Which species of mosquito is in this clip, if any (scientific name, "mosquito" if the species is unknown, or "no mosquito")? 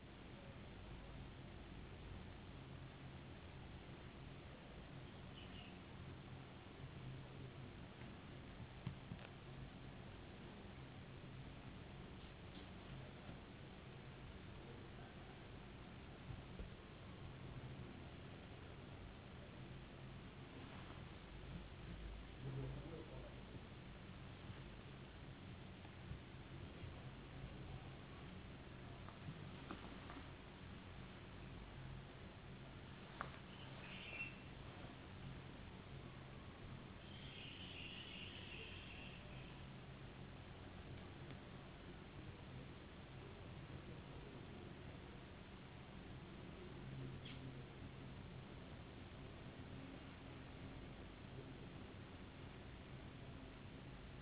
no mosquito